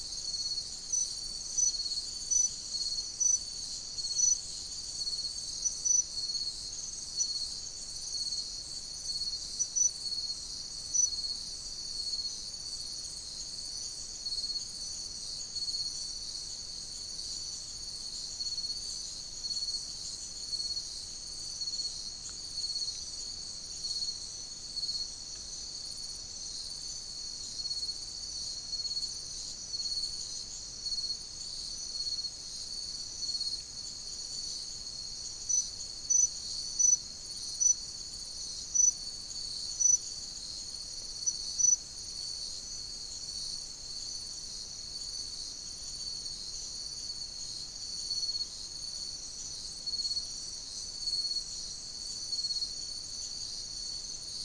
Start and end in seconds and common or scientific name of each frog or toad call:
none